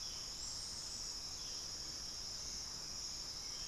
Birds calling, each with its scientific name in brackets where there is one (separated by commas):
Hauxwell's Thrush (Turdus hauxwelli)